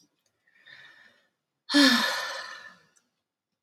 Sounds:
Sigh